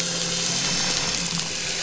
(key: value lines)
label: anthrophony, boat engine
recorder: SoundTrap 500